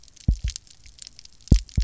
{"label": "biophony, double pulse", "recorder": "SoundTrap 300"}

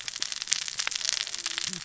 {"label": "biophony, cascading saw", "recorder": "SoundTrap 600 or HydroMoth"}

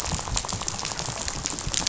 {"label": "biophony, rattle", "recorder": "SoundTrap 500"}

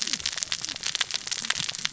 {"label": "biophony, cascading saw", "recorder": "SoundTrap 600 or HydroMoth"}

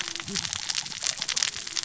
{"label": "biophony, cascading saw", "recorder": "SoundTrap 600 or HydroMoth"}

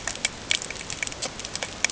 {"label": "ambient", "recorder": "HydroMoth"}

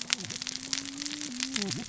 {"label": "biophony, cascading saw", "recorder": "SoundTrap 600 or HydroMoth"}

